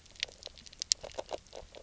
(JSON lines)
{"label": "biophony", "recorder": "SoundTrap 300"}